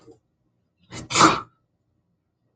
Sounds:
Sneeze